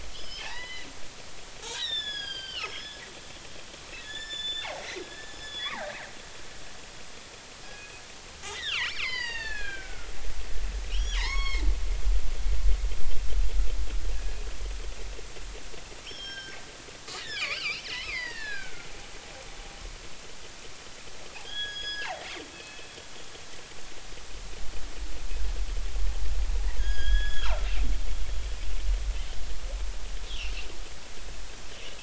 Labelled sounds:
0.1	0.9	killer whale, northern resident, G clan, 0.80 to 5.2 kHz
1.6	3.0	killer whale, northern resident, G clan, 0.80 to 7.1 kHz
4.0	5.9	killer whale, northern resident, G clan, 0.80 to 7.2 kHz
7.6	8.0	killer whale, northern resident, G clan, 1.6 to 2.6 kHz
8.4	10.1	killer whale, northern resident, G clan, 0.83 to 5.2 kHz
10.9	11.6	killer whale, northern resident, G clan, 2.4 to 6.7 kHz
12.2	12.6	killer whale, northern resident, G clan, 0.80 to 4.5 kHz
16.0	18.9	killer whale, northern resident, G clan, 0.90 to 5.6 kHz
21.4	22.2	killer whale, northern resident, G clan, 1.5 to 6.7 kHz
22.5	22.9	killer whale, northern resident, G clan, 2.4 to 2.7 kHz
26.8	27.6	killer whale, northern resident, G clan, 0.80 to 6.8 kHz
30.3	30.6	killer whale, northern resident, G clan, 2.4 to 3.7 kHz

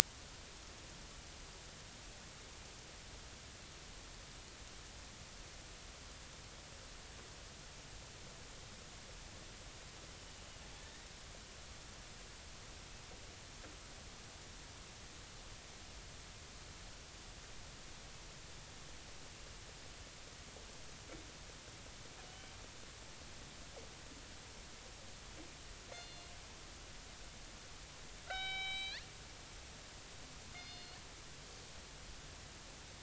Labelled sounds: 22.2	22.6	killer whale, northern resident, G clan, 2.8 to 3.1 kHz
25.9	26.3	killer whale, northern resident, G clan, 2.8 to 4.3 kHz
28.2	29.1	killer whale, northern resident, G clan, 0.80 to 7.7 kHz
30.5	31.0	killer whale, northern resident, G clan, 2.1 to 5.1 kHz

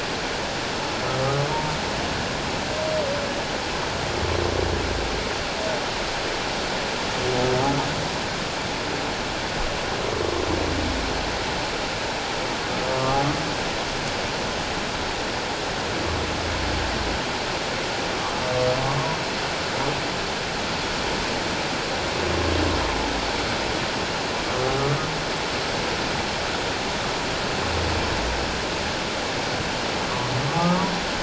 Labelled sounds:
1.5	1.8	humpback whale, 0.88 to 0.97 kHz
12.9	13.2	humpback whale, 1.0 to 1.2 kHz
30.5	30.8	humpback whale, 1.1 to 1.3 kHz

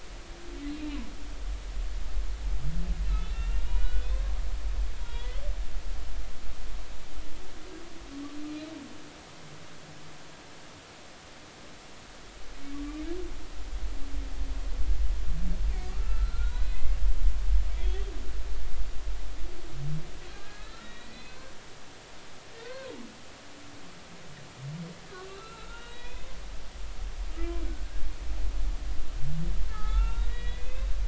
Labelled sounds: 3.0	4.2	humpback whale, 1.4 to 3.7 kHz
5.0	5.4	humpback whale, 1.9 to 3.9 kHz
12.7	13.0	humpback whale, 1.1 to 1.2 kHz
15.9	17.0	humpback whale, 1.1 to 4.1 kHz
17.7	18.0	humpback whale, 3.2 to 3.5 kHz
20.3	21.5	humpback whale, 1.5 to 4.3 kHz
22.6	22.9	humpback whale, 0.90 to 1.6 kHz
25.3	26.3	humpback whale, 1.3 to 4.1 kHz
29.7	30.9	humpback whale, 0.80 to 3.9 kHz

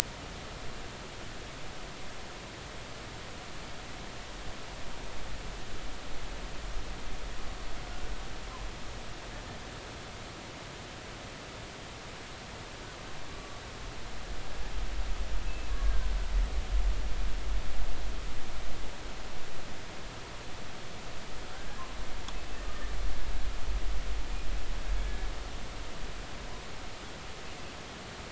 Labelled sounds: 13.3	13.6	killer whale, Bigg's (transient), 1.1 to 1.2 kHz

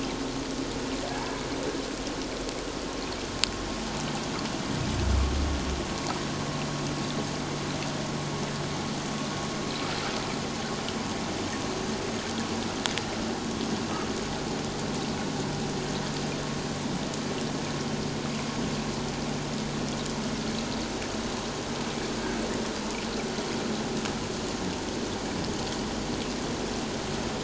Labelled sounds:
1.1	1.4	humpback whale, 1.5 to 1.7 kHz

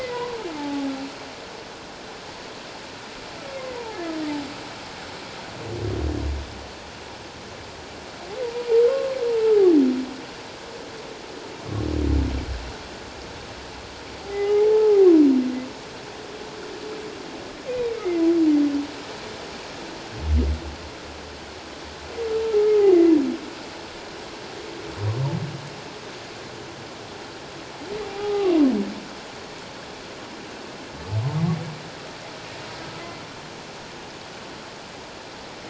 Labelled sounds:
0.0	0.9	humpback whale, 0.78 to 2.1 kHz
3.5	4.0	humpback whale, 0.78 to 2.2 kHz
8.4	9.2	humpback whale, 0.81 to 1.1 kHz
14.2	15.1	humpback whale, 0.78 to 2.2 kHz
17.7	18.3	humpback whale, 1.9 to 2.5 kHz
28.0	28.5	humpback whale, 0.78 to 1.3 kHz

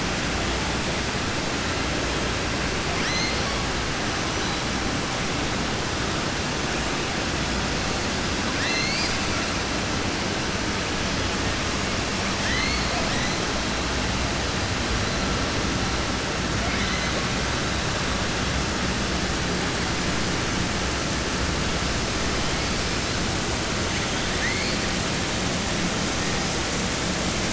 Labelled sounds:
2.9	3.5	killer whale, southern resident, 1.2 to 6.4 kHz
8.5	9.2	killer whale, southern resident, 1.6 to 7.9 kHz
12.3	12.9	killer whale, southern resident, 1.2 to 4.5 kHz
24.2	24.7	killer whale, southern resident, 1.7 to 2.5 kHz

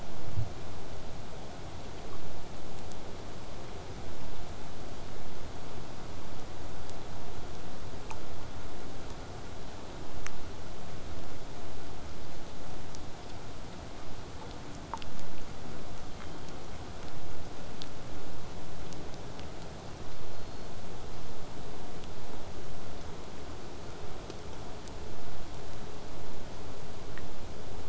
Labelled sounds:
0.0	5.0	vessel noise, 0 to 8.0 kHz
16.1	16.8	killer whale, southern resident, 1.6 to 4.8 kHz
20.2	20.7	killer whale, southern resident, 3.5 to 5.2 kHz

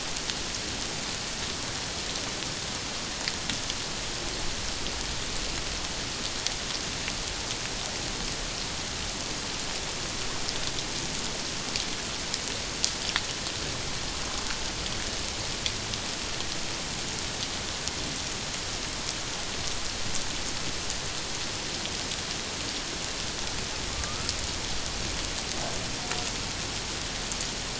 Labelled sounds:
23.9	24.2	humpback whale, 1.1 to 1.3 kHz

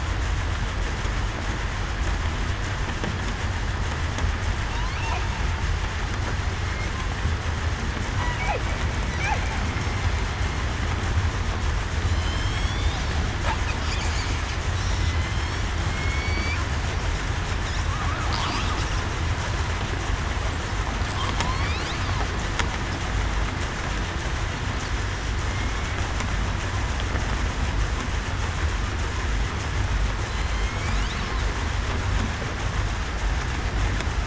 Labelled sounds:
12.1	13.0	killer whale, southern resident, 3.0 to 8.0 kHz
15.1	15.6	killer whale, southern resident, 3.0 to 5.7 kHz
15.9	16.6	killer whale, southern resident, 2.1 to 4.7 kHz
30.3	30.7	killer whale, southern resident, 4.0 to 4.2 kHz

